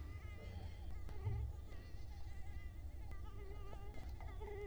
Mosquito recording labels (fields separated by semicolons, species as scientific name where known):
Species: Culex quinquefasciatus; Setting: cup